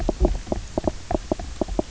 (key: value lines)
label: biophony, knock croak
recorder: SoundTrap 300